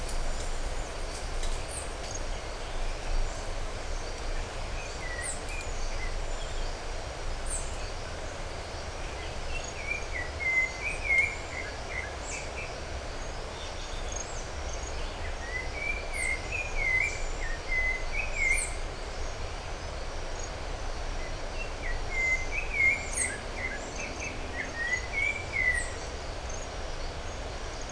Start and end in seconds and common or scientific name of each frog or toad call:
none